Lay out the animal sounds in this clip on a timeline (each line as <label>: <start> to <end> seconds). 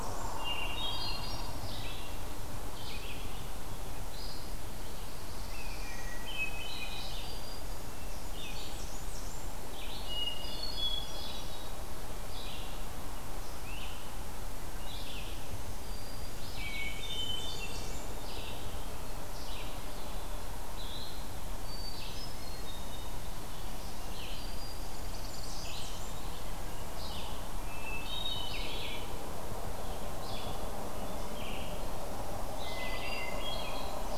Red-eyed Vireo (Vireo olivaceus): 0.0 to 34.2 seconds
Hermit Thrush (Catharus guttatus): 0.2 to 1.6 seconds
Black-throated Blue Warbler (Setophaga caerulescens): 4.7 to 6.2 seconds
unidentified call: 5.4 to 6.2 seconds
Hermit Thrush (Catharus guttatus): 5.9 to 7.5 seconds
Black-throated Green Warbler (Setophaga virens): 6.6 to 8.0 seconds
Blackburnian Warbler (Setophaga fusca): 7.8 to 9.6 seconds
Hermit Thrush (Catharus guttatus): 9.9 to 11.8 seconds
Black-throated Green Warbler (Setophaga virens): 14.9 to 16.7 seconds
Hermit Thrush (Catharus guttatus): 16.7 to 18.1 seconds
Blackburnian Warbler (Setophaga fusca): 16.7 to 18.2 seconds
Hermit Thrush (Catharus guttatus): 21.6 to 23.3 seconds
Black-throated Green Warbler (Setophaga virens): 23.5 to 25.2 seconds
Black-throated Blue Warbler (Setophaga caerulescens): 24.6 to 26.0 seconds
Blackburnian Warbler (Setophaga fusca): 24.8 to 26.2 seconds
Hermit Thrush (Catharus guttatus): 27.5 to 29.2 seconds
Hermit Thrush (Catharus guttatus): 32.5 to 33.7 seconds
Blackburnian Warbler (Setophaga fusca): 33.6 to 34.2 seconds